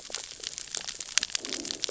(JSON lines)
{"label": "biophony, cascading saw", "recorder": "SoundTrap 600 or HydroMoth"}